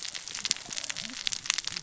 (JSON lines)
{"label": "biophony, cascading saw", "recorder": "SoundTrap 600 or HydroMoth"}